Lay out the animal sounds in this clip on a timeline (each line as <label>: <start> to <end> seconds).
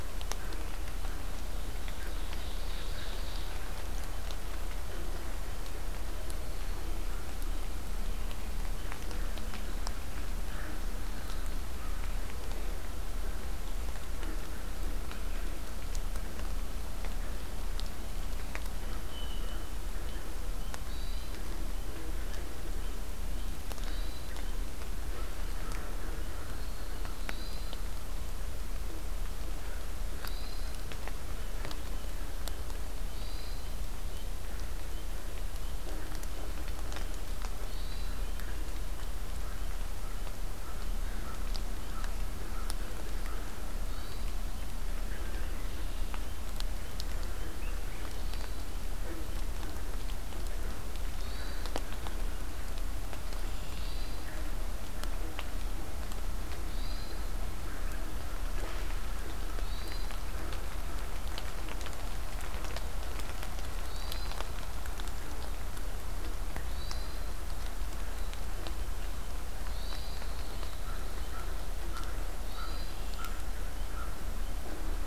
Ovenbird (Seiurus aurocapilla): 1.6 to 3.4 seconds
Hermit Thrush (Catharus guttatus): 20.8 to 21.4 seconds
Hermit Thrush (Catharus guttatus): 23.7 to 24.3 seconds
Hermit Thrush (Catharus guttatus): 27.2 to 27.7 seconds
Hermit Thrush (Catharus guttatus): 30.1 to 30.8 seconds
Hermit Thrush (Catharus guttatus): 33.1 to 33.7 seconds
Hermit Thrush (Catharus guttatus): 37.6 to 38.2 seconds
Hermit Thrush (Catharus guttatus): 43.8 to 44.4 seconds
Hermit Thrush (Catharus guttatus): 47.9 to 48.6 seconds
Hermit Thrush (Catharus guttatus): 51.1 to 51.7 seconds
Red-winged Blackbird (Agelaius phoeniceus): 53.2 to 54.0 seconds
Hermit Thrush (Catharus guttatus): 53.7 to 54.3 seconds
Hermit Thrush (Catharus guttatus): 56.7 to 57.4 seconds
Hermit Thrush (Catharus guttatus): 59.6 to 60.2 seconds
Hermit Thrush (Catharus guttatus): 63.8 to 64.5 seconds
Hermit Thrush (Catharus guttatus): 66.6 to 67.3 seconds
Hermit Thrush (Catharus guttatus): 69.6 to 70.3 seconds
Red-winged Blackbird (Agelaius phoeniceus): 69.9 to 71.4 seconds
American Crow (Corvus brachyrhynchos): 70.8 to 74.3 seconds
Hermit Thrush (Catharus guttatus): 72.4 to 73.0 seconds